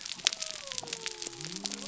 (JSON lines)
{"label": "biophony", "recorder": "SoundTrap 300"}